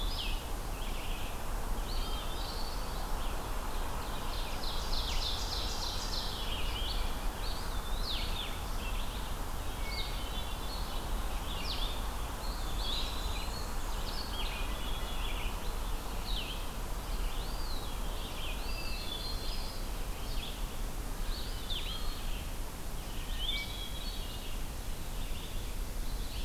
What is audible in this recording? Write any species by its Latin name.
Vireo solitarius, Vireo olivaceus, Contopus virens, Seiurus aurocapilla, Catharus guttatus, Mniotilta varia